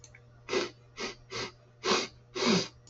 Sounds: Sniff